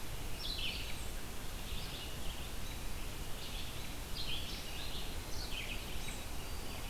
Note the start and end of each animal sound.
[0.00, 6.89] American Robin (Turdus migratorius)
[0.00, 6.89] Red-eyed Vireo (Vireo olivaceus)

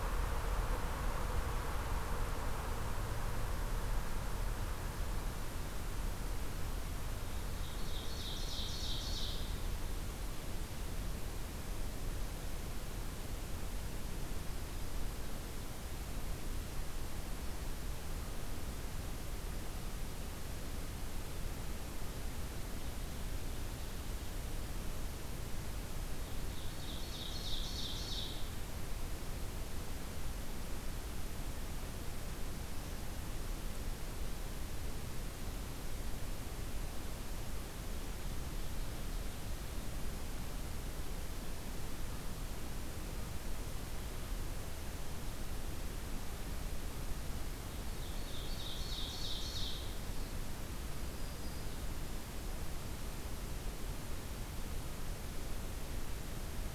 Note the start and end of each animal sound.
[7.55, 9.56] Ovenbird (Seiurus aurocapilla)
[26.58, 28.46] Ovenbird (Seiurus aurocapilla)
[47.91, 49.90] Ovenbird (Seiurus aurocapilla)
[50.75, 51.84] Black-throated Green Warbler (Setophaga virens)

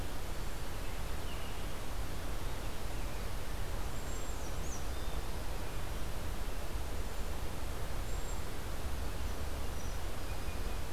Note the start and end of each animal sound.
[0.91, 3.27] American Robin (Turdus migratorius)
[3.15, 4.91] Black-and-white Warbler (Mniotilta varia)
[3.80, 4.50] Cedar Waxwing (Bombycilla cedrorum)
[6.81, 8.47] Cedar Waxwing (Bombycilla cedrorum)

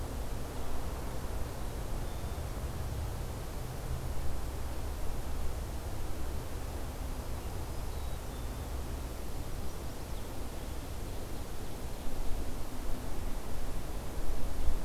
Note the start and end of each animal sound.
[7.13, 8.27] Black-throated Green Warbler (Setophaga virens)
[7.91, 8.65] Black-capped Chickadee (Poecile atricapillus)
[9.42, 10.25] Chestnut-sided Warbler (Setophaga pensylvanica)

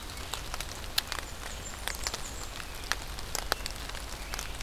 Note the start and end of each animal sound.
[1.11, 2.59] Blackburnian Warbler (Setophaga fusca)
[2.40, 4.63] American Robin (Turdus migratorius)

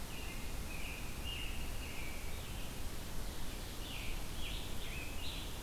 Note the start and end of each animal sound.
[0.00, 2.89] American Robin (Turdus migratorius)
[3.61, 5.62] Scarlet Tanager (Piranga olivacea)

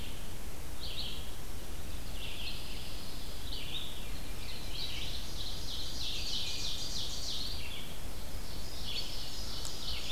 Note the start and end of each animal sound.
[0.63, 10.12] Red-eyed Vireo (Vireo olivaceus)
[1.89, 3.41] Pine Warbler (Setophaga pinus)
[3.88, 5.14] Veery (Catharus fuscescens)
[4.41, 7.68] Ovenbird (Seiurus aurocapilla)
[8.15, 10.12] Ovenbird (Seiurus aurocapilla)

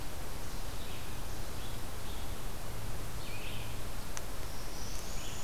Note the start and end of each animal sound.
[0.00, 5.43] Red-eyed Vireo (Vireo olivaceus)
[4.31, 5.43] Northern Parula (Setophaga americana)

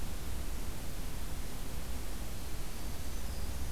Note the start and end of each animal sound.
[2.62, 3.71] Black-throated Green Warbler (Setophaga virens)

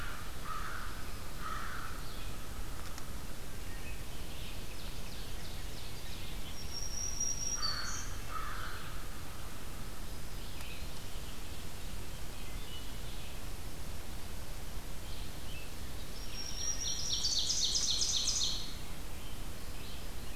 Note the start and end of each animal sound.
[0.00, 3.11] American Crow (Corvus brachyrhynchos)
[4.28, 6.55] Ovenbird (Seiurus aurocapilla)
[6.38, 8.32] Black-throated Green Warbler (Setophaga virens)
[7.42, 9.01] American Crow (Corvus brachyrhynchos)
[9.85, 11.22] Black-throated Green Warbler (Setophaga virens)
[10.28, 20.35] Red-eyed Vireo (Vireo olivaceus)
[11.97, 12.73] Wood Thrush (Hylocichla mustelina)
[15.91, 17.70] Black-throated Green Warbler (Setophaga virens)
[16.67, 18.78] Ovenbird (Seiurus aurocapilla)

